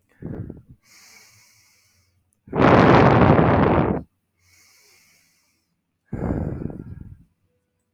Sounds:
Sigh